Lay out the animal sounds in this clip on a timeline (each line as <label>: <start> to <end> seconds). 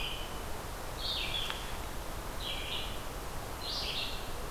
Red-eyed Vireo (Vireo olivaceus): 0.0 to 4.5 seconds